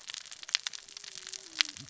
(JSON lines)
{"label": "biophony, cascading saw", "recorder": "SoundTrap 600 or HydroMoth"}